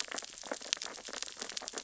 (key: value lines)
label: biophony, sea urchins (Echinidae)
recorder: SoundTrap 600 or HydroMoth